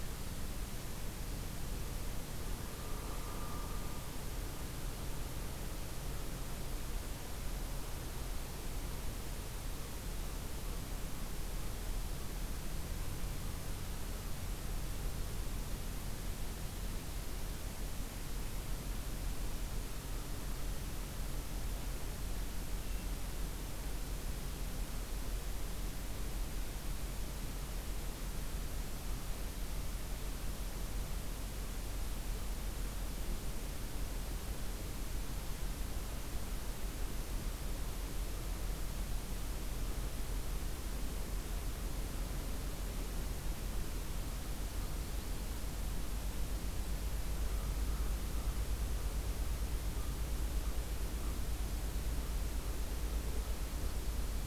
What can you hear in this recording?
American Crow